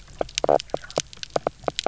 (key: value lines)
label: biophony, knock croak
recorder: SoundTrap 300